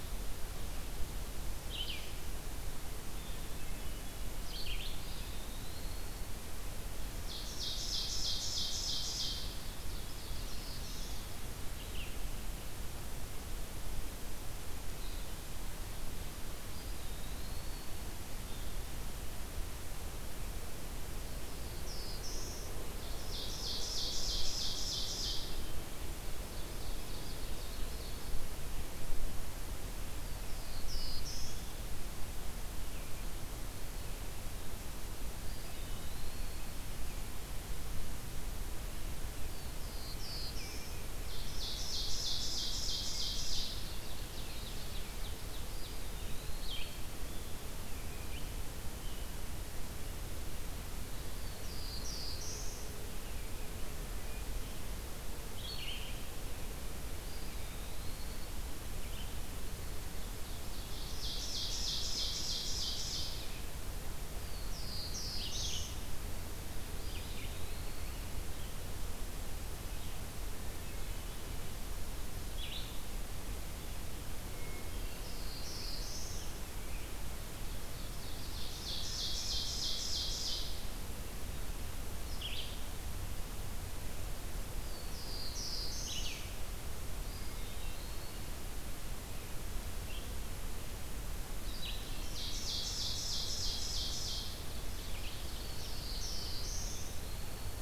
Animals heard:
Red-eyed Vireo (Vireo olivaceus), Ovenbird (Seiurus aurocapilla), Black-throated Blue Warbler (Setophaga caerulescens), Hermit Thrush (Catharus guttatus), Eastern Wood-Pewee (Contopus virens)

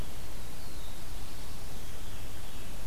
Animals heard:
Veery (Catharus fuscescens), Black-throated Blue Warbler (Setophaga caerulescens)

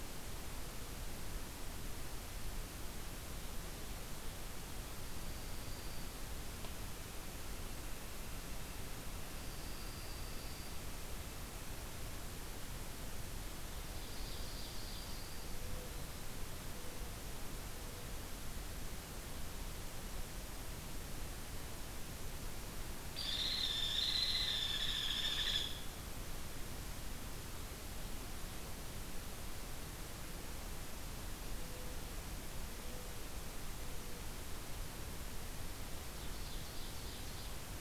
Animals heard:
Northern Flicker (Colaptes auratus), Dark-eyed Junco (Junco hyemalis), Ovenbird (Seiurus aurocapilla), Hairy Woodpecker (Dryobates villosus)

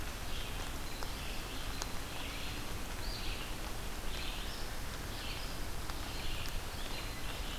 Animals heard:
Red-eyed Vireo (Vireo olivaceus), Hairy Woodpecker (Dryobates villosus)

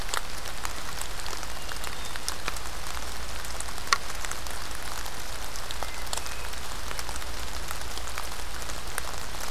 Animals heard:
Hermit Thrush (Catharus guttatus)

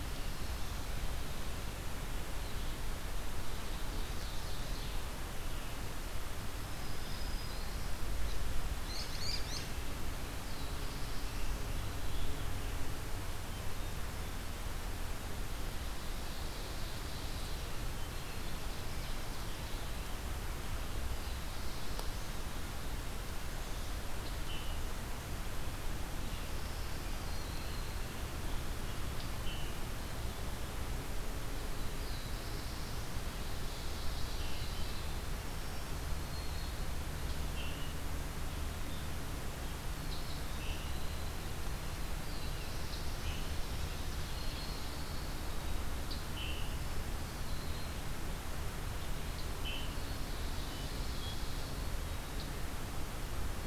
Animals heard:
Ovenbird (Seiurus aurocapilla), Scarlet Tanager (Piranga olivacea), Black-throated Green Warbler (Setophaga virens), Black-throated Blue Warbler (Setophaga caerulescens), unidentified call

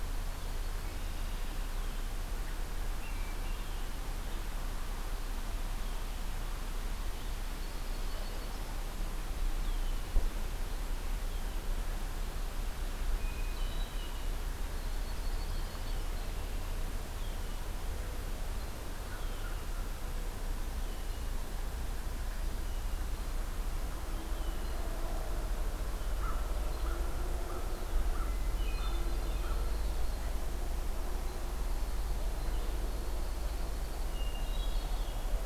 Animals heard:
Red-winged Blackbird (Agelaius phoeniceus), Yellow-rumped Warbler (Setophaga coronata), Hermit Thrush (Catharus guttatus), American Crow (Corvus brachyrhynchos)

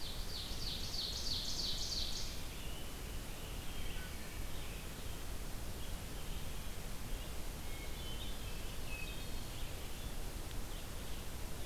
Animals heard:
Ovenbird (Seiurus aurocapilla), Red-eyed Vireo (Vireo olivaceus), Wood Thrush (Hylocichla mustelina)

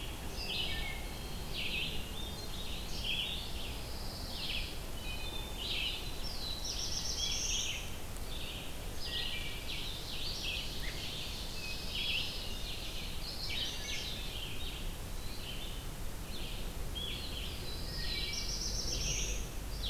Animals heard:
Pine Warbler (Setophaga pinus), Wood Thrush (Hylocichla mustelina), Red-eyed Vireo (Vireo olivaceus), Black-throated Blue Warbler (Setophaga caerulescens), Hermit Thrush (Catharus guttatus), Ovenbird (Seiurus aurocapilla)

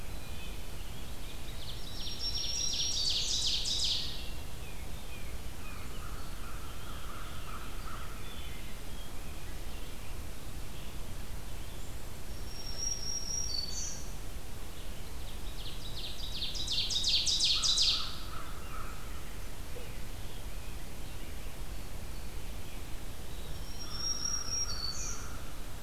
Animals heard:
Black-throated Green Warbler (Setophaga virens), Wood Thrush (Hylocichla mustelina), American Crow (Corvus brachyrhynchos), Ovenbird (Seiurus aurocapilla), Tufted Titmouse (Baeolophus bicolor), Eastern Wood-Pewee (Contopus virens)

